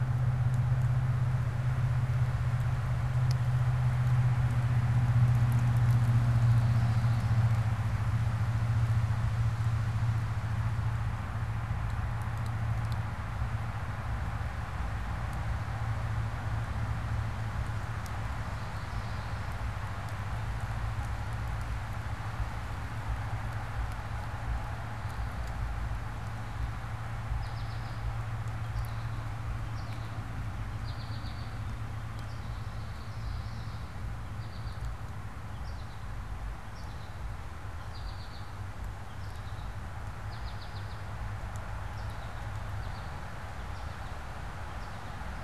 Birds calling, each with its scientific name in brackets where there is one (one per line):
American Goldfinch (Spinus tristis)
Common Yellowthroat (Geothlypis trichas)